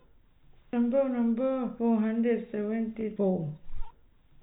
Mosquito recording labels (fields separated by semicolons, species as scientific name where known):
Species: no mosquito; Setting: cup